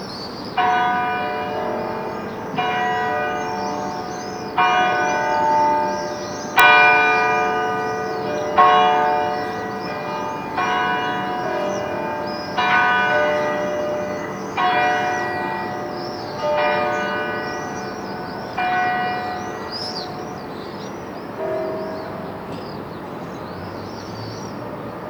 Are the bells being played large?
yes